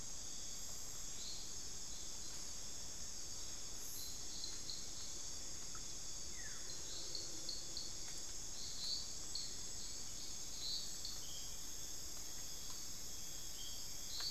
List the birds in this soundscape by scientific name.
Xiphorhynchus guttatus